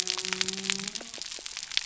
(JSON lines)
{"label": "biophony", "recorder": "SoundTrap 300"}